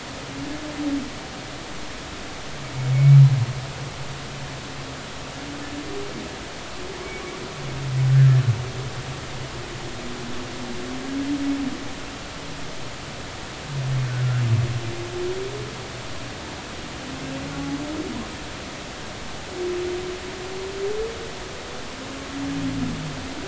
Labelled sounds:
2.9	3.2	humpback whale, 2.2 to 2.3 kHz

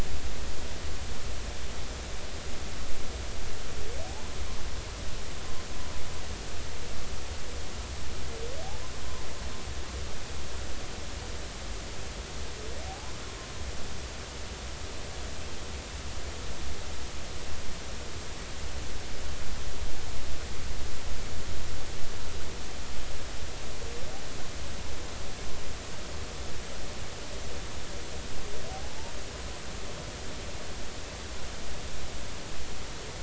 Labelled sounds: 12.8	13.1	humpback whale, 0.80 to 0.93 kHz
28.7	29.0	humpback whale, 0.80 to 0.90 kHz

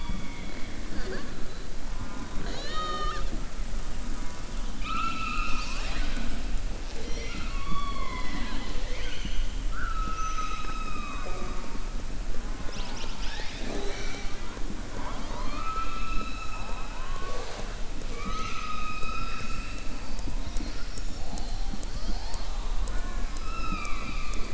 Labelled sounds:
1.9	3.3	killer whale, southern resident, 0.29 to 6.9 kHz
4.7	6.3	killer whale, southern resident, 0.74 to 7.5 kHz
18.0	19.8	killer whale, southern resident, 0.47 to 6.8 kHz

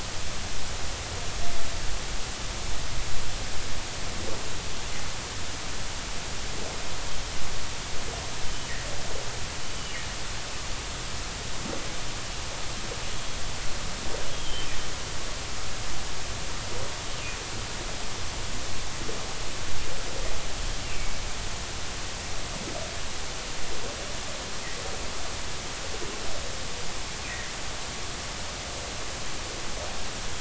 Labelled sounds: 9.8	10.0	humpback whale, 2.7 to 3.0 kHz
13.1	13.4	humpback whale, 3.2 to 3.4 kHz
14.3	14.7	humpback whale, 3.0 to 3.4 kHz
20.8	21.2	humpback whale, 2.2 to 2.9 kHz
27.3	27.5	humpback whale, 1.7 to 2.1 kHz

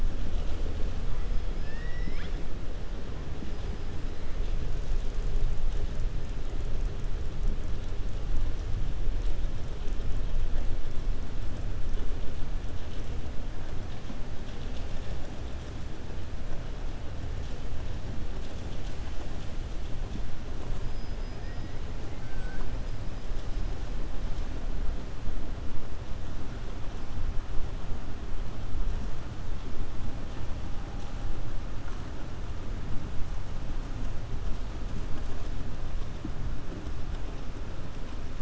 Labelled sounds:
1.5	2.4	killer whale, 1.2 to 5.5 kHz

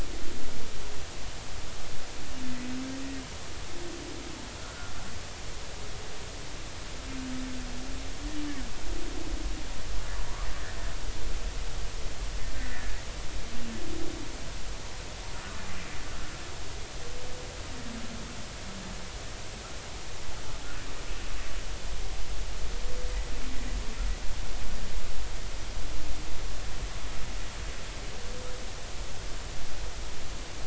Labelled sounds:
4.6	4.9	humpback whale, 1.3 to 1.6 kHz
12.5	13.0	humpback whale, 1.4 to 2.0 kHz

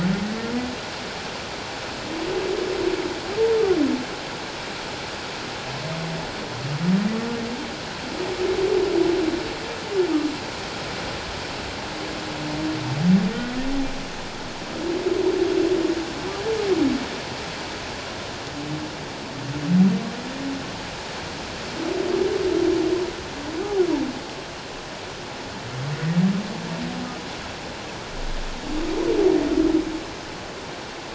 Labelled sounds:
13.3	13.6	humpback whale, 1.8 to 2.0 kHz

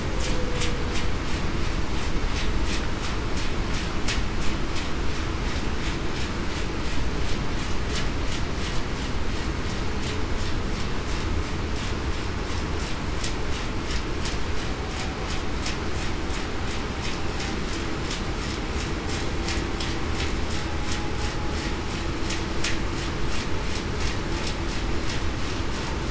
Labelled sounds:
0.2	0.6	humpback whale, 0.47 to 0.54 kHz

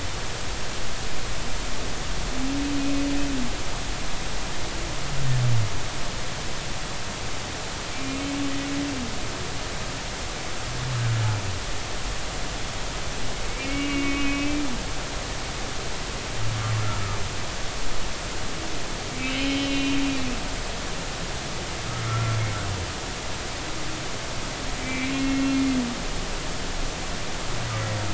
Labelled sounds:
8.9	9.3	humpback whale, 2.3 to 2.5 kHz
13.7	14.7	humpback whale, 2.1 to 2.9 kHz
19.3	20.0	humpback whale, 2.4 to 3.9 kHz
22.1	22.4	humpback whale, 1.2 to 1.4 kHz
24.8	25.4	humpback whale, 2.0 to 2.8 kHz

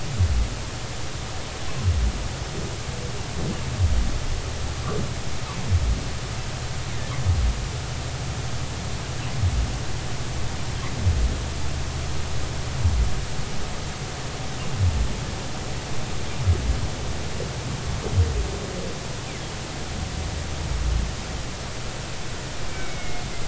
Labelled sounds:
22.7	23.2	humpback whale, 2.1 to 2.3 kHz

